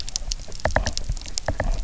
{"label": "biophony, knock", "recorder": "SoundTrap 300"}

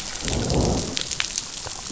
{"label": "biophony, growl", "recorder": "SoundTrap 500"}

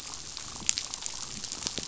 {"label": "biophony, chatter", "recorder": "SoundTrap 500"}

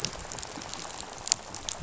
{"label": "biophony, rattle", "recorder": "SoundTrap 500"}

